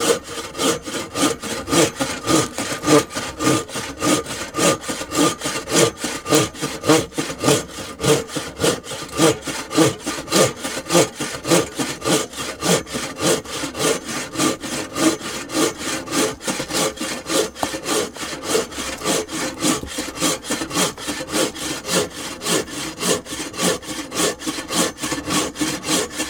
What is being cut?
wood